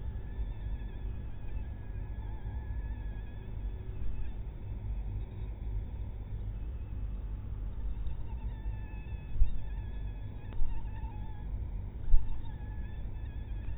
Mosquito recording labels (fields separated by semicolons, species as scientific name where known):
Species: mosquito; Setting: cup